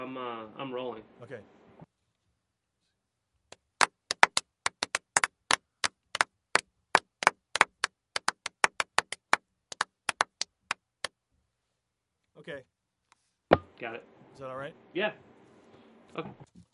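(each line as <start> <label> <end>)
0.0 Two men are talking clearly. 1.9
3.5 Hands clapping unrhythmically in a studio. 11.1
12.3 A man is speaking. 12.7
13.1 A brief static snap is heard. 13.2
13.5 A brief, loud thud on plastic. 13.6
13.6 Two men are talking with overlapping noises. 16.7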